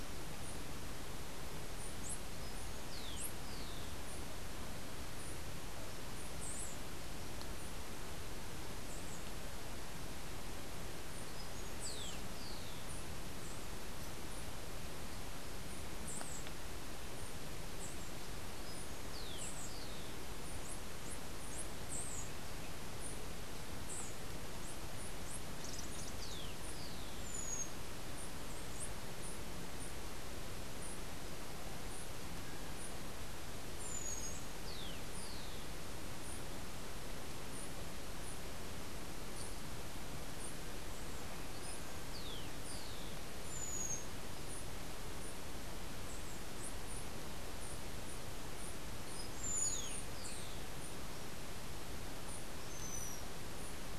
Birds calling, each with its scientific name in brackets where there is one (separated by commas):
unidentified bird, Rufous-collared Sparrow (Zonotrichia capensis)